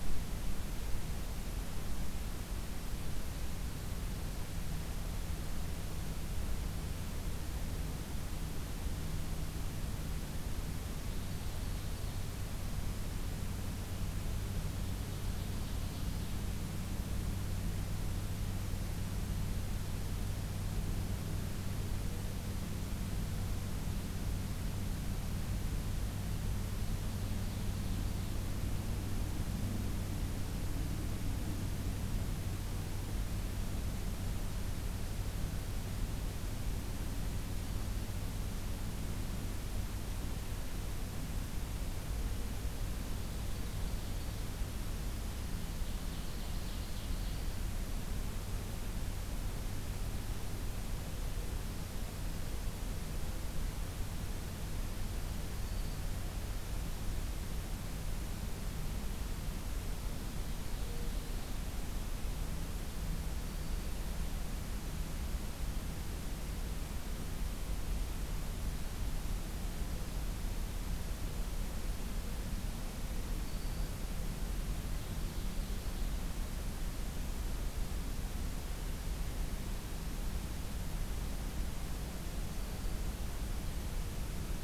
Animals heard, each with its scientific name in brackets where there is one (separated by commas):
Ovenbird (Seiurus aurocapilla), Black-throated Green Warbler (Setophaga virens), Mourning Dove (Zenaida macroura)